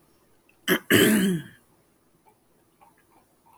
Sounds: Throat clearing